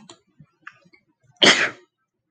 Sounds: Sneeze